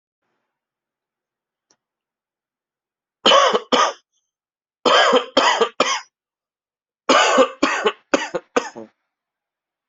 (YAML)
expert_labels:
- quality: good
  cough_type: unknown
  dyspnea: false
  wheezing: false
  stridor: false
  choking: false
  congestion: false
  nothing: true
  diagnosis: upper respiratory tract infection
  severity: mild
age: 29
gender: male
respiratory_condition: false
fever_muscle_pain: false
status: COVID-19